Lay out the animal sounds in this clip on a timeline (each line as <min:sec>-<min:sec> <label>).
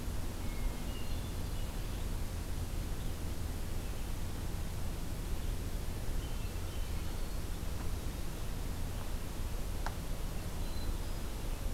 0:00.4-0:02.5 Hermit Thrush (Catharus guttatus)
0:02.9-0:03.5 Red-eyed Vireo (Vireo olivaceus)
0:06.0-0:07.8 Hermit Thrush (Catharus guttatus)
0:10.4-0:11.7 Hermit Thrush (Catharus guttatus)